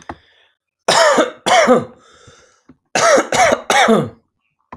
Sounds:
Cough